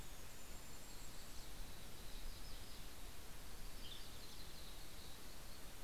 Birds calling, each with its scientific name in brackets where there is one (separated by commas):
Yellow-rumped Warbler (Setophaga coronata), Western Tanager (Piranga ludoviciana), Golden-crowned Kinglet (Regulus satrapa)